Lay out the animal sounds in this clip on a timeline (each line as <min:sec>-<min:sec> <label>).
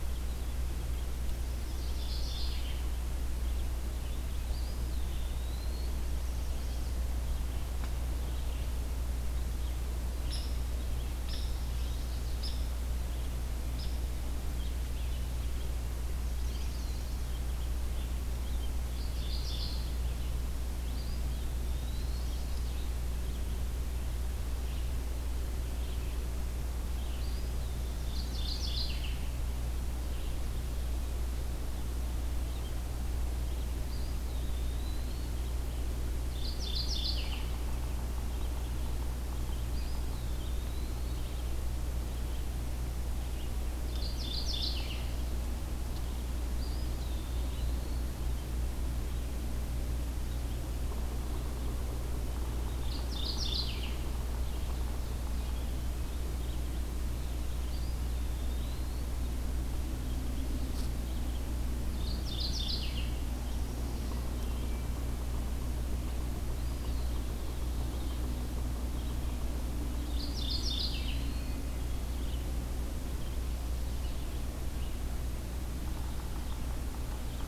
0:00.0-0:46.3 Red-eyed Vireo (Vireo olivaceus)
0:01.7-0:03.1 Mourning Warbler (Geothlypis philadelphia)
0:04.4-0:06.0 Eastern Wood-Pewee (Contopus virens)
0:06.0-0:07.0 Chestnut-sided Warbler (Setophaga pensylvanica)
0:10.2-0:14.2 Hairy Woodpecker (Dryobates villosus)
0:16.0-0:17.2 Chestnut-sided Warbler (Setophaga pensylvanica)
0:16.1-0:17.0 Eastern Wood-Pewee (Contopus virens)
0:18.9-0:20.0 Mourning Warbler (Geothlypis philadelphia)
0:20.8-0:22.4 Eastern Wood-Pewee (Contopus virens)
0:27.0-0:28.3 Eastern Wood-Pewee (Contopus virens)
0:27.9-0:29.2 Mourning Warbler (Geothlypis philadelphia)
0:33.8-0:35.3 Eastern Wood-Pewee (Contopus virens)
0:36.2-0:37.6 Mourning Warbler (Geothlypis philadelphia)
0:39.6-0:41.1 Eastern Wood-Pewee (Contopus virens)
0:43.7-0:45.2 Mourning Warbler (Geothlypis philadelphia)
0:46.5-0:48.1 Eastern Wood-Pewee (Contopus virens)
0:52.3-1:17.5 Red-eyed Vireo (Vireo olivaceus)
0:52.6-0:54.0 Mourning Warbler (Geothlypis philadelphia)
0:57.4-0:59.1 Eastern Wood-Pewee (Contopus virens)
1:01.7-1:03.2 Mourning Warbler (Geothlypis philadelphia)
1:06.4-1:07.5 Eastern Wood-Pewee (Contopus virens)
1:09.9-1:11.7 Eastern Wood-Pewee (Contopus virens)
1:11.2-1:12.1 Hermit Thrush (Catharus guttatus)